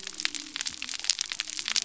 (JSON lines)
{"label": "biophony", "recorder": "SoundTrap 300"}